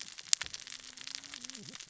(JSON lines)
{"label": "biophony, cascading saw", "recorder": "SoundTrap 600 or HydroMoth"}